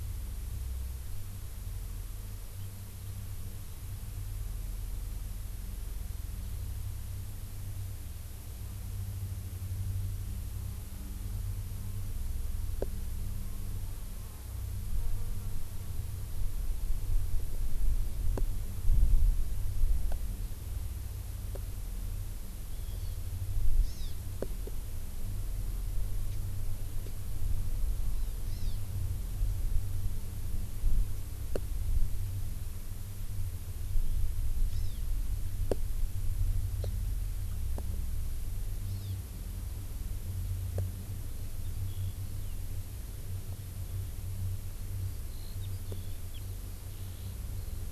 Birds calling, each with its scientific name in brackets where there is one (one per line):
Eurasian Skylark (Alauda arvensis)
Hawaii Amakihi (Chlorodrepanis virens)